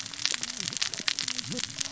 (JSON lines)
{"label": "biophony, cascading saw", "recorder": "SoundTrap 600 or HydroMoth"}